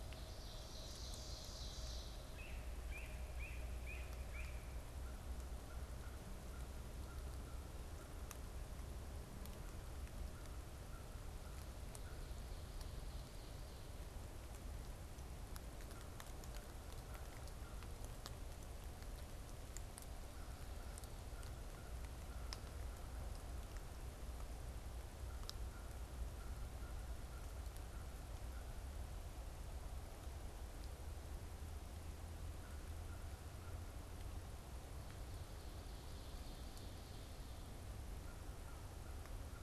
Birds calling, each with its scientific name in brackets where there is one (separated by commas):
Ovenbird (Seiurus aurocapilla), Yellow-bellied Sapsucker (Sphyrapicus varius), American Crow (Corvus brachyrhynchos)